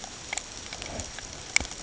{"label": "ambient", "recorder": "HydroMoth"}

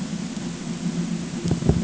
{"label": "ambient", "recorder": "HydroMoth"}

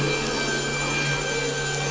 {"label": "anthrophony, boat engine", "recorder": "SoundTrap 500"}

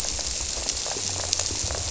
{"label": "biophony", "recorder": "SoundTrap 300"}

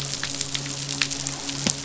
{"label": "biophony, midshipman", "recorder": "SoundTrap 500"}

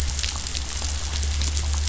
{"label": "anthrophony, boat engine", "recorder": "SoundTrap 500"}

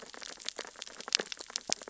{"label": "biophony, sea urchins (Echinidae)", "recorder": "SoundTrap 600 or HydroMoth"}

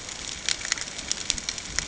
{"label": "ambient", "recorder": "HydroMoth"}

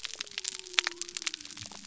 {"label": "biophony", "recorder": "SoundTrap 300"}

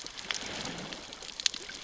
{"label": "biophony, growl", "recorder": "SoundTrap 600 or HydroMoth"}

